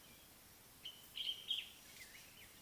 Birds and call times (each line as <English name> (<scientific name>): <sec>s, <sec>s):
Common Bulbul (Pycnonotus barbatus): 1.2s